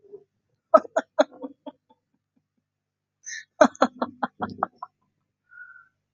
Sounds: Laughter